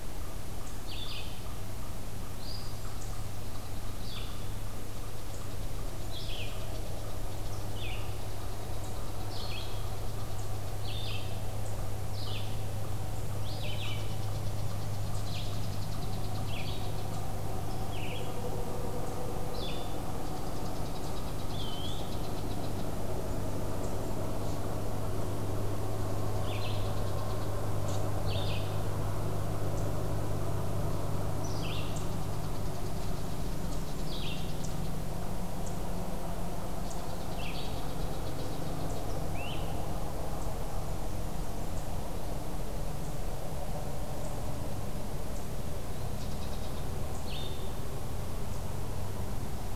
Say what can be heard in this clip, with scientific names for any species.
unknown mammal, Vireo olivaceus, unidentified call, Contopus virens, Myiarchus crinitus, Setophaga fusca